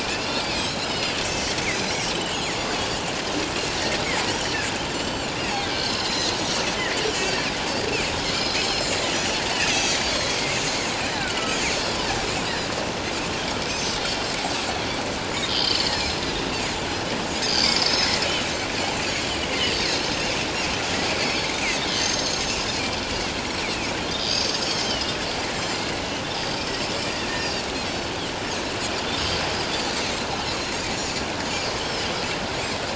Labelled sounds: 0.0	1.2	Pacific white-sided dolphin, 2.3 to 5.3 kHz
2.1	2.6	Pacific white-sided dolphin, 2.8 to 7.1 kHz
4.9	6.4	Pacific white-sided dolphin, 1.5 to 7.6 kHz
8.2	9.4	Pacific white-sided dolphin, 4.0 to 6.1 kHz
9.7	10.6	Pacific white-sided dolphin, 2.0 to 6.2 kHz
11.0	12.0	Pacific white-sided dolphin, 1.2 to 5.5 kHz
15.5	16.2	Pacific white-sided dolphin, 2.9 to 5.3 kHz
17.5	18.8	Pacific white-sided dolphin, 4.0 to 7.6 kHz
20.0	20.3	Pacific white-sided dolphin, 5.2 to 6.5 kHz
21.2	22.6	Pacific white-sided dolphin, 2.0 to 7.0 kHz
23.5	25.2	Pacific white-sided dolphin, 2.8 to 8.0 kHz
25.6	26.9	Pacific white-sided dolphin, 4.6 to 7.6 kHz
27.4	28.1	Pacific white-sided dolphin, 4.3 to 5.4 kHz
29.7	30.0	Pacific white-sided dolphin, 4.2 to 4.8 kHz
30.5	31.2	Pacific white-sided dolphin, 3.8 to 7.3 kHz
31.8	32.1	Pacific white-sided dolphin, 4.9 to 5.4 kHz

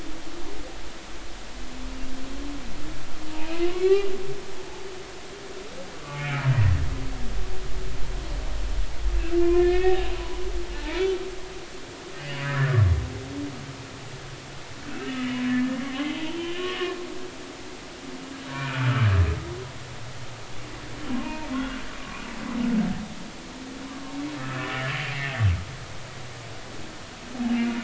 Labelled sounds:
3.4	4.1	humpback whale, 2.4 to 2.9 kHz
6.0	6.5	humpback whale, 1.1 to 2.4 kHz
9.4	10.4	humpback whale, 0.83 to 2.7 kHz
12.2	12.8	humpback whale, 1.2 to 3.0 kHz
14.9	15.4	humpback whale, 1.7 to 3.0 kHz
15.9	16.7	humpback whale, 2.3 to 3.3 kHz
18.5	19.1	humpback whale, 1.1 to 2.6 kHz
21.2	21.5	humpback whale, 0.86 to 2.5 kHz
22.0	22.2	humpback whale, 0.99 to 1.2 kHz
24.6	25.4	humpback whale, 1.7 to 2.3 kHz

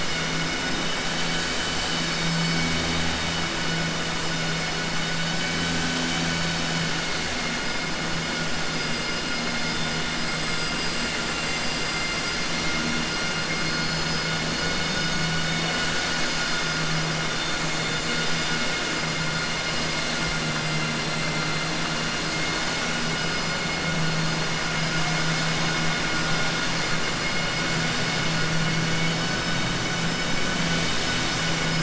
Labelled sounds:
11.3	12.7	vessel noise, 4.1 to 5.6 kHz

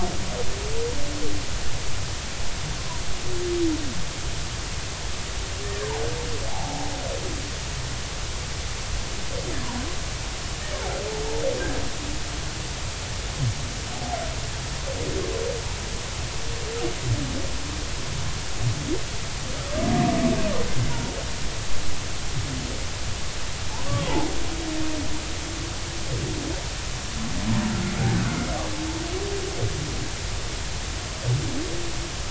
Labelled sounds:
6.5	6.9	humpback whale, 0.80 to 0.93 kHz
23.9	24.3	humpback whale, 0.80 to 1.2 kHz
28.3	28.5	humpback whale, 2.0 to 2.2 kHz

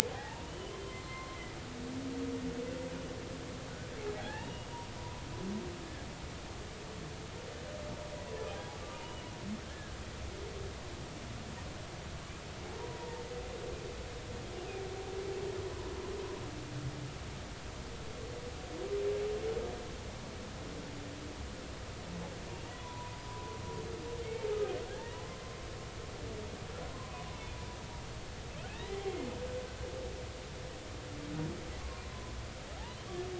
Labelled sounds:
0.1	1.4	humpback whale, 0.80 to 4.2 kHz
4.2	4.7	humpback whale, 0.80 to 2.9 kHz
9.6	10.0	humpback whale, 1.5 to 1.8 kHz
13.0	13.2	humpback whale, 0.86 to 0.99 kHz
22.7	23.6	humpback whale, 0.90 to 1.1 kHz
24.2	24.5	humpback whale, 2.0 to 2.3 kHz
28.7	29.3	humpback whale, 0.80 to 2.2 kHz

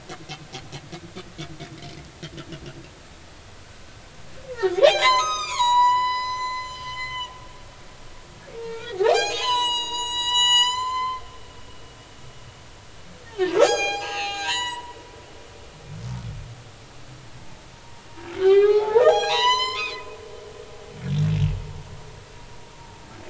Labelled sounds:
4.8	7.3	humpback whale, 0.80 to 8.0 kHz
8.6	11.2	humpback whale, 0.80 to 8.0 kHz
13.4	14.9	humpback whale, 0.80 to 8.0 kHz
18.3	20.2	humpback whale, 0.80 to 8.0 kHz

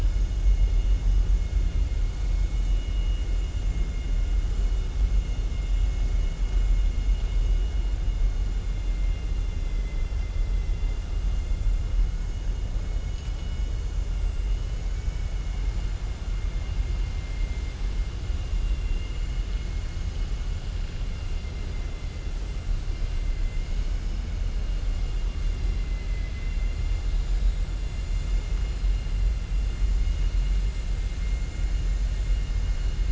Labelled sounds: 9.4	11.0	vessel noise, 2.0 to 3.5 kHz
14.8	15.6	vessel noise, 1.5 to 3.0 kHz
18.6	19.3	vessel noise, 2.1 to 3.5 kHz
25.9	26.7	vessel noise, 1.7 to 3.6 kHz

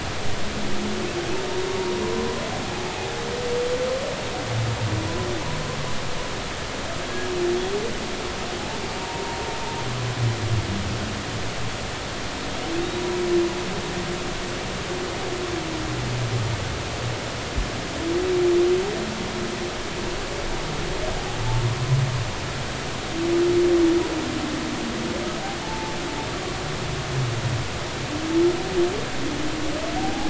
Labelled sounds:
2.7	3.2	humpback whale, 0.80 to 0.90 kHz
9.0	9.2	humpback whale, 0.90 to 0.99 kHz
25.6	26.0	humpback whale, 0.80 to 0.93 kHz
30.0	30.2	humpback whale, 0.80 to 0.90 kHz

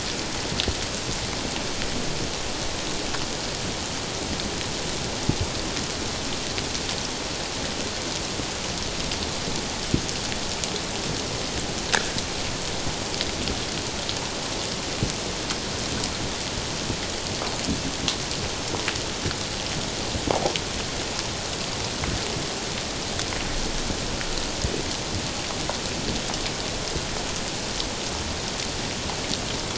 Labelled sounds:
11.9	12.1	click-like sound, 1.3 to 1.9 kHz

